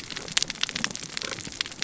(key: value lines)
label: biophony, cascading saw
recorder: SoundTrap 600 or HydroMoth